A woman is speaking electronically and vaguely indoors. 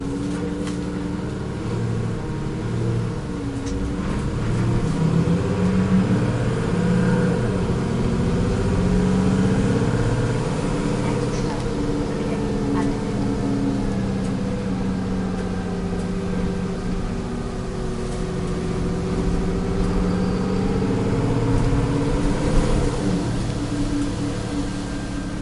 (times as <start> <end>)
11.0 13.4